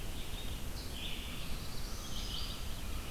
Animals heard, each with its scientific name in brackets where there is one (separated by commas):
Red-eyed Vireo (Vireo olivaceus), American Crow (Corvus brachyrhynchos), Black-throated Blue Warbler (Setophaga caerulescens)